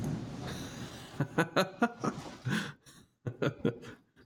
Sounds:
Laughter